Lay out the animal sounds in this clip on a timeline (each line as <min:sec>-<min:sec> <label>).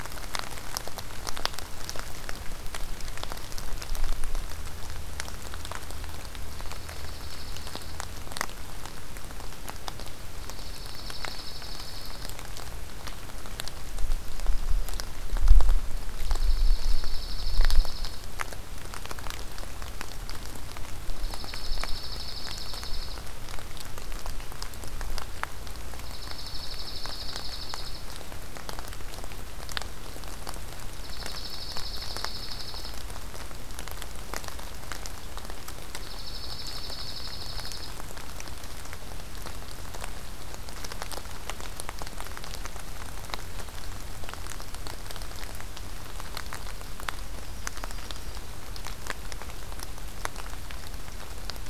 0:06.4-0:08.0 Dark-eyed Junco (Junco hyemalis)
0:10.4-0:12.3 Dark-eyed Junco (Junco hyemalis)
0:14.1-0:15.3 Yellow-rumped Warbler (Setophaga coronata)
0:16.2-0:18.2 Dark-eyed Junco (Junco hyemalis)
0:21.2-0:23.2 Dark-eyed Junco (Junco hyemalis)
0:26.0-0:28.0 Dark-eyed Junco (Junco hyemalis)
0:31.0-0:33.0 Dark-eyed Junco (Junco hyemalis)
0:36.0-0:37.9 Dark-eyed Junco (Junco hyemalis)
0:47.3-0:48.6 Yellow-rumped Warbler (Setophaga coronata)